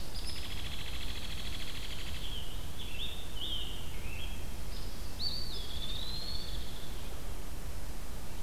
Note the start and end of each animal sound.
[0.13, 2.32] Hairy Woodpecker (Dryobates villosus)
[1.96, 4.61] Scarlet Tanager (Piranga olivacea)
[4.61, 4.91] Hairy Woodpecker (Dryobates villosus)
[4.97, 7.08] Eastern Wood-Pewee (Contopus virens)
[5.45, 7.11] Hairy Woodpecker (Dryobates villosus)

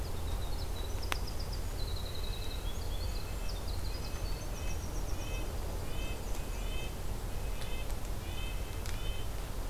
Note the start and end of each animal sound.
[0.00, 6.77] Winter Wren (Troglodytes hiemalis)
[4.29, 9.28] Red-breasted Nuthatch (Sitta canadensis)
[5.43, 6.91] Black-and-white Warbler (Mniotilta varia)

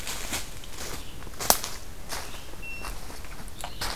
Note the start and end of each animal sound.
[0.00, 3.96] Red-eyed Vireo (Vireo olivaceus)

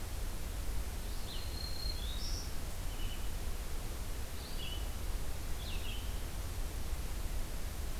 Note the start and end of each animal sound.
[0.00, 6.18] Red-eyed Vireo (Vireo olivaceus)
[1.25, 2.48] Black-throated Green Warbler (Setophaga virens)

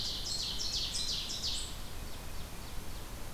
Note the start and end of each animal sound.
[0.00, 3.27] Ovenbird (Seiurus aurocapilla)

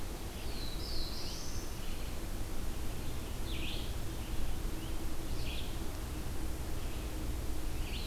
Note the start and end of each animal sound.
[0.00, 8.06] Red-eyed Vireo (Vireo olivaceus)
[0.35, 1.77] Black-throated Blue Warbler (Setophaga caerulescens)

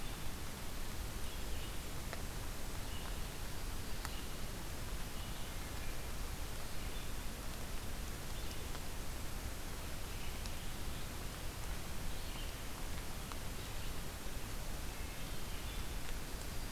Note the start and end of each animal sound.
[0.00, 10.62] Red-eyed Vireo (Vireo olivaceus)
[3.30, 4.48] Black-throated Green Warbler (Setophaga virens)
[11.96, 16.71] Red-eyed Vireo (Vireo olivaceus)
[14.72, 15.88] Wood Thrush (Hylocichla mustelina)

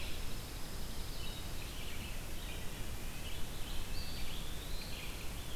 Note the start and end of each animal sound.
[0.00, 1.50] Pine Warbler (Setophaga pinus)
[1.38, 5.56] Red-eyed Vireo (Vireo olivaceus)
[2.63, 3.27] Wood Thrush (Hylocichla mustelina)
[3.85, 4.98] Eastern Wood-Pewee (Contopus virens)

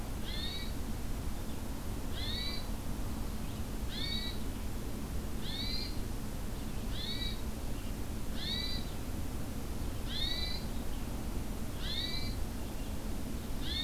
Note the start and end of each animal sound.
[0.00, 1.61] Red-eyed Vireo (Vireo olivaceus)
[0.23, 0.77] Hermit Thrush (Catharus guttatus)
[2.14, 2.67] Hermit Thrush (Catharus guttatus)
[3.23, 13.84] Red-eyed Vireo (Vireo olivaceus)
[3.88, 4.41] Hermit Thrush (Catharus guttatus)
[5.41, 6.02] Hermit Thrush (Catharus guttatus)
[6.89, 7.44] Hermit Thrush (Catharus guttatus)
[8.34, 8.85] Hermit Thrush (Catharus guttatus)
[10.04, 10.66] Hermit Thrush (Catharus guttatus)
[11.78, 12.37] Hermit Thrush (Catharus guttatus)

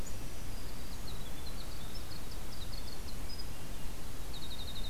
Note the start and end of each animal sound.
[0.00, 1.22] Black-throated Green Warbler (Setophaga virens)
[0.69, 3.59] Winter Wren (Troglodytes hiemalis)
[3.38, 4.35] Swainson's Thrush (Catharus ustulatus)
[4.22, 4.89] Winter Wren (Troglodytes hiemalis)

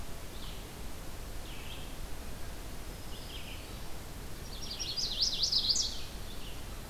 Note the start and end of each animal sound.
[0.00, 6.70] Red-eyed Vireo (Vireo olivaceus)
[2.83, 4.00] Black-throated Green Warbler (Setophaga virens)
[4.06, 6.38] Chestnut-sided Warbler (Setophaga pensylvanica)

